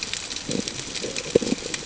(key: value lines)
label: ambient
recorder: HydroMoth